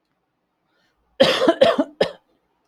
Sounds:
Cough